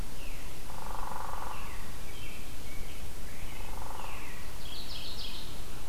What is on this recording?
Veery, Hairy Woodpecker, American Robin, Mourning Warbler